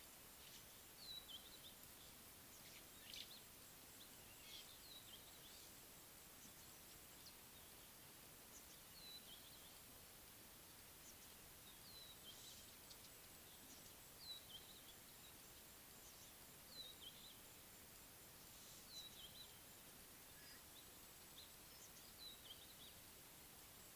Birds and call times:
Red-backed Scrub-Robin (Cercotrichas leucophrys): 1.1s, 9.1s, 16.9s

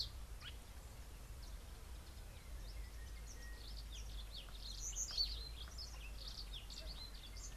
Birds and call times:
Sulphur-breasted Bushshrike (Telophorus sulfureopectus): 3.4s
Brimstone Canary (Crithagra sulphurata): 5.3s

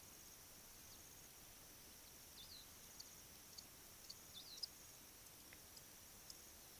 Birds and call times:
African Pipit (Anthus cinnamomeus): 2.5s

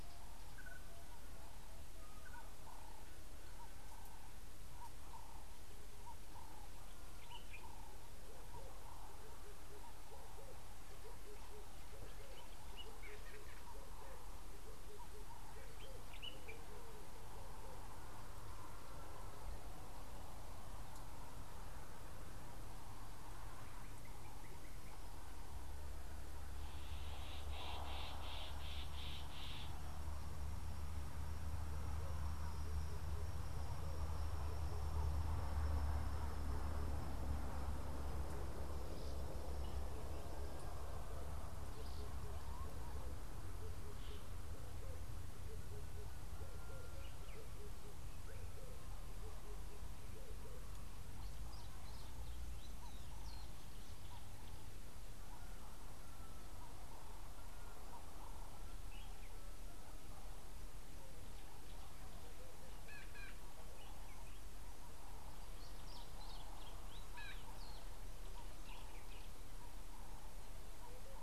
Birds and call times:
Ring-necked Dove (Streptopelia capicola): 2.8s
Common Bulbul (Pycnonotus barbatus): 7.3s, 16.2s
Sulphur-breasted Bushshrike (Telophorus sulfureopectus): 29.1s
Gray-backed Camaroptera (Camaroptera brevicaudata): 63.0s
Red-faced Crombec (Sylvietta whytii): 66.0s

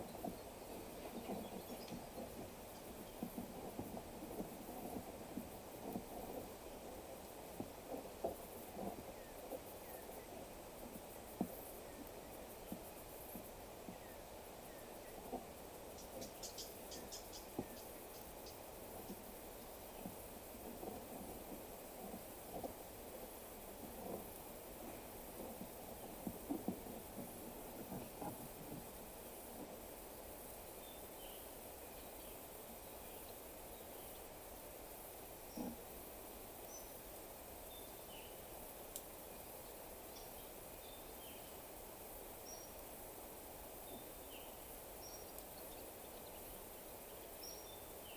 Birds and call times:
African Emerald Cuckoo (Chrysococcyx cupreus): 9.8s, 14.6s
Collared Sunbird (Hedydipna collaris): 16.4s
Waller's Starling (Onychognathus walleri): 31.1s, 38.0s, 44.2s
Cinnamon-chested Bee-eater (Merops oreobates): 36.6s

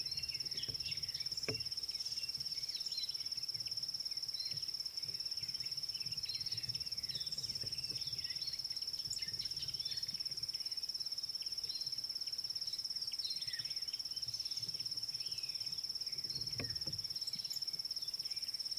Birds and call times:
Purple Grenadier (Granatina ianthinogaster): 17.5s

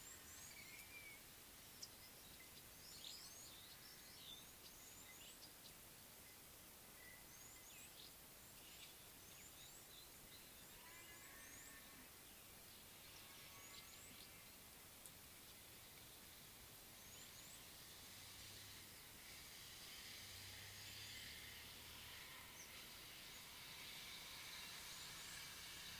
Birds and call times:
Red-rumped Swallow (Cecropis daurica): 3.1s
Red-cheeked Cordonbleu (Uraeginthus bengalus): 7.6s, 13.7s

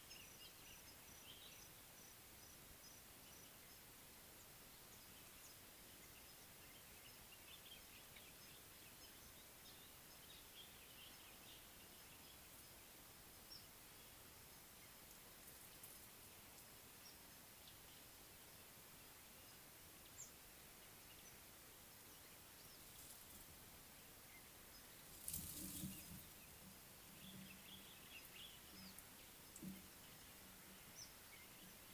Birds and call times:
Rufous Chatterer (Argya rubiginosa): 13.6s
Common Bulbul (Pycnonotus barbatus): 27.7s

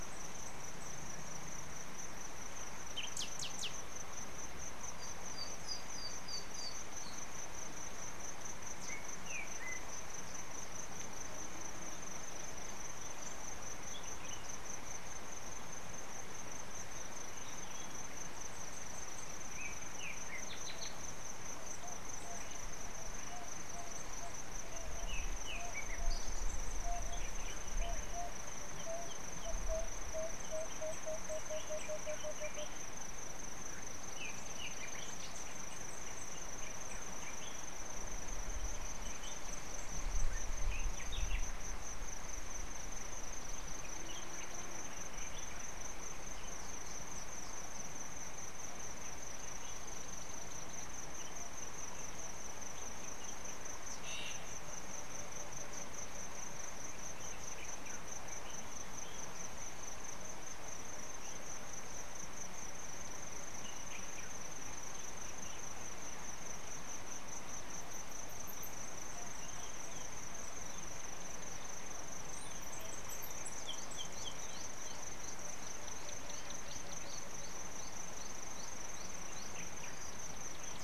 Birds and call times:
Emerald-spotted Wood-Dove (Turtur chalcospilos): 26.9s, 29.6s, 31.9s

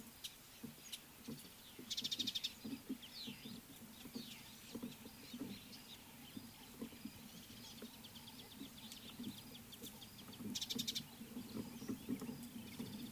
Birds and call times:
Mariqua Sunbird (Cinnyris mariquensis): 2.2s

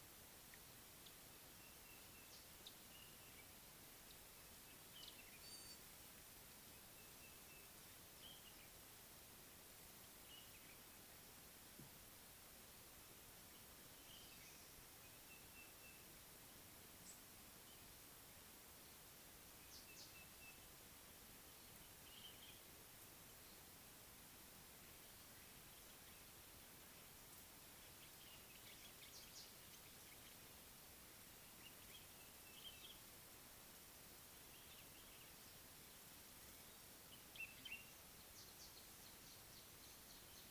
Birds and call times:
Sulphur-breasted Bushshrike (Telophorus sulfureopectus): 1.8s, 7.2s, 15.5s, 20.1s, 32.4s
Gray-backed Camaroptera (Camaroptera brevicaudata): 5.6s
Common Bulbul (Pycnonotus barbatus): 22.1s, 37.3s

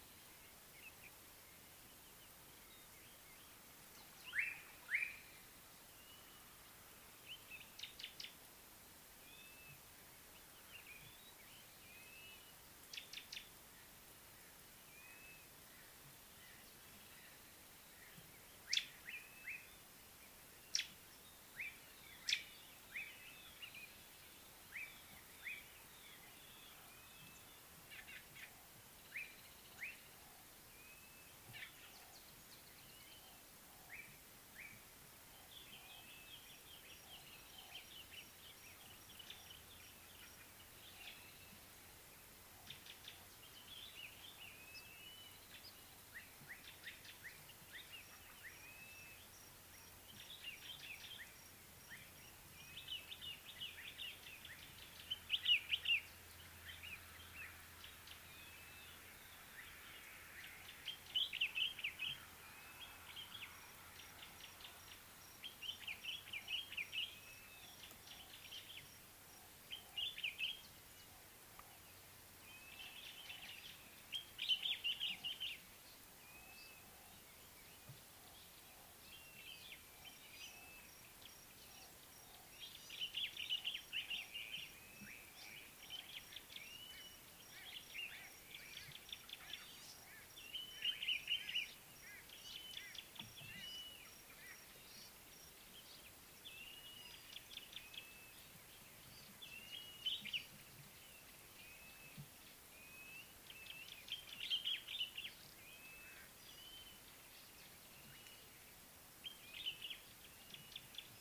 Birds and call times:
Slate-colored Boubou (Laniarius funebris): 4.5s, 24.8s
Gray-backed Camaroptera (Camaroptera brevicaudata): 8.1s, 13.2s, 20.8s, 28.2s, 89.0s
Common Bulbul (Pycnonotus barbatus): 44.1s, 53.4s, 61.5s, 66.2s, 75.1s, 83.6s, 90.8s, 104.7s
Blue-naped Mousebird (Urocolius macrourus): 48.9s
White-bellied Go-away-bird (Corythaixoides leucogaster): 92.9s

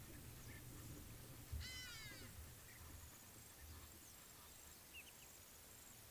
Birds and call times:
Hadada Ibis (Bostrychia hagedash): 1.9s

